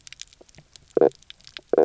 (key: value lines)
label: biophony, knock croak
recorder: SoundTrap 300